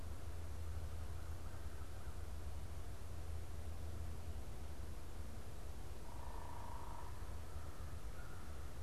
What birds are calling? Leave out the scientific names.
American Crow, unidentified bird